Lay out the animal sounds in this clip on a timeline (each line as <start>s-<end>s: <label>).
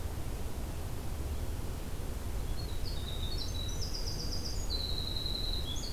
2.4s-5.9s: Winter Wren (Troglodytes hiemalis)